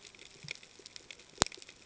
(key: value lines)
label: ambient
recorder: HydroMoth